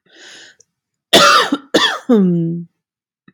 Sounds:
Cough